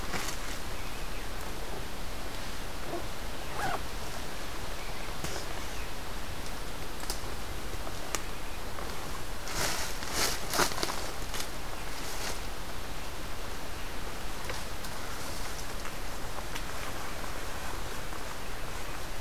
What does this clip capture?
Red-eyed Vireo